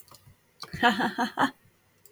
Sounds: Laughter